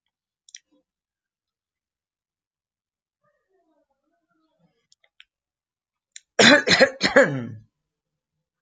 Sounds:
Cough